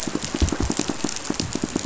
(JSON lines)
{"label": "biophony, pulse", "recorder": "SoundTrap 500"}